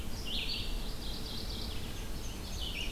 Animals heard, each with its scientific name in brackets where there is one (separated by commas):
Red-eyed Vireo (Vireo olivaceus), Mourning Warbler (Geothlypis philadelphia), Indigo Bunting (Passerina cyanea)